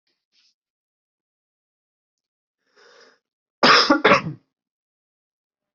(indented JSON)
{
  "expert_labels": [
    {
      "quality": "good",
      "cough_type": "dry",
      "dyspnea": false,
      "wheezing": false,
      "stridor": false,
      "choking": false,
      "congestion": false,
      "nothing": true,
      "diagnosis": "healthy cough",
      "severity": "pseudocough/healthy cough"
    }
  ],
  "age": 26,
  "gender": "male",
  "respiratory_condition": true,
  "fever_muscle_pain": false,
  "status": "healthy"
}